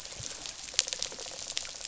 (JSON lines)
{"label": "biophony, rattle response", "recorder": "SoundTrap 500"}